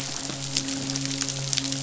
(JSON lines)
{"label": "biophony, midshipman", "recorder": "SoundTrap 500"}